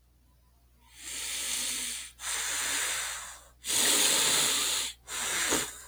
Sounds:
Sigh